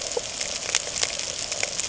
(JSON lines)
{"label": "ambient", "recorder": "HydroMoth"}